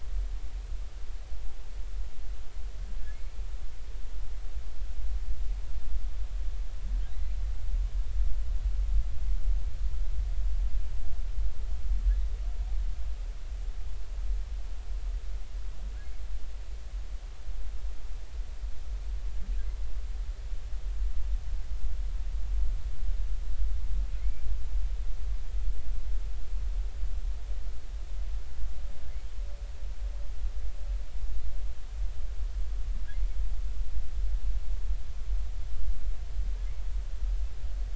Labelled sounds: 24.2	24.4	humpback whale, 2.0 to 2.4 kHz

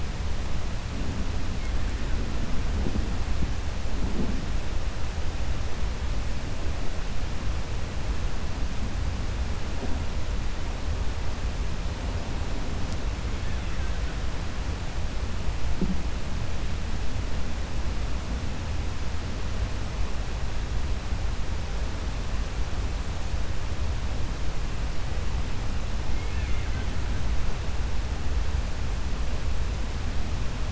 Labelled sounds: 26.1	26.9	killer whale, Bigg's (transient), 1.5 to 3.5 kHz

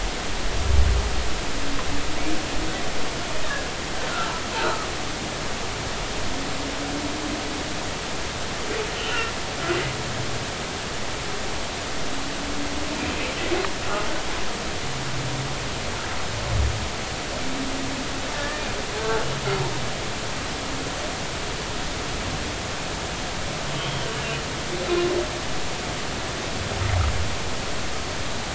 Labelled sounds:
3.4	3.7	humpback whale, 1.6 to 1.9 kHz
4.6	4.9	humpback whale, 1.1 to 1.5 kHz
9.0	9.3	humpback whale, 1.3 to 2.9 kHz
19.3	19.6	humpback whale, 1.6 to 1.9 kHz
23.8	24.1	humpback whale, 3.0 to 3.3 kHz

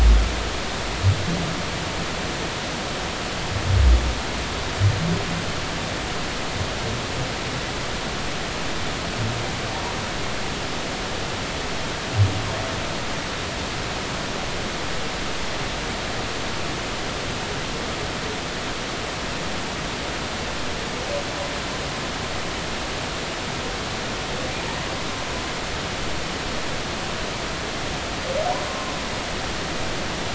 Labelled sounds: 28.7	28.9	humpback whale, 0.99 to 1.1 kHz

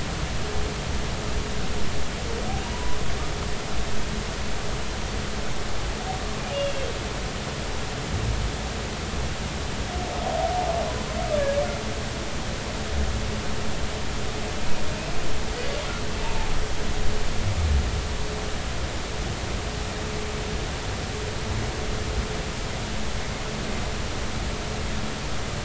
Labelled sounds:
2.7	3.0	humpback whale, 0.90 to 1.1 kHz
6.5	6.9	humpback whale, 2.7 to 2.9 kHz
16.2	16.6	humpback whale, 0.80 to 0.96 kHz

